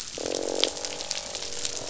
{"label": "biophony, croak", "recorder": "SoundTrap 500"}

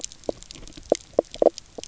{"label": "biophony, knock croak", "recorder": "SoundTrap 300"}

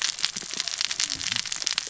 {"label": "biophony, cascading saw", "recorder": "SoundTrap 600 or HydroMoth"}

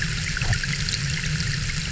{"label": "anthrophony, boat engine", "recorder": "SoundTrap 300"}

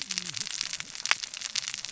{"label": "biophony, cascading saw", "recorder": "SoundTrap 600 or HydroMoth"}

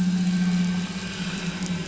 {"label": "anthrophony, boat engine", "recorder": "SoundTrap 500"}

